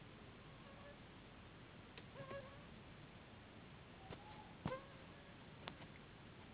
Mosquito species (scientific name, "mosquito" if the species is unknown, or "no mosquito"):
Anopheles gambiae s.s.